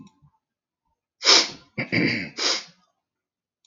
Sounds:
Sniff